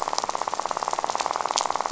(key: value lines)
label: biophony, rattle
recorder: SoundTrap 500